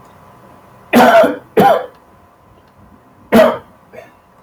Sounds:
Cough